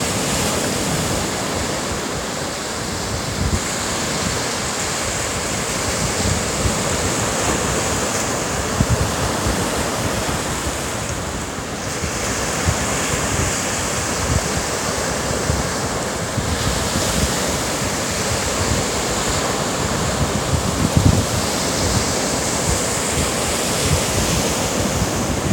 Is it raining hard?
yes